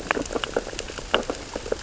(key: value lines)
label: biophony, sea urchins (Echinidae)
recorder: SoundTrap 600 or HydroMoth